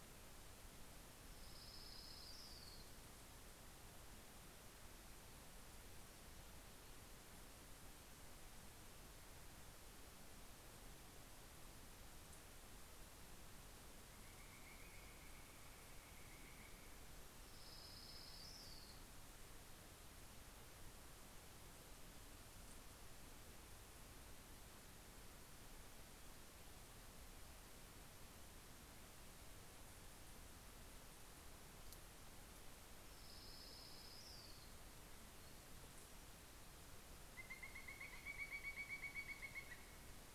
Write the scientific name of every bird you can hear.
Leiothlypis celata, Colaptes auratus